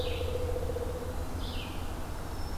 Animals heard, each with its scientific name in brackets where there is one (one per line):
Black-throated Green Warbler (Setophaga virens)
Red-eyed Vireo (Vireo olivaceus)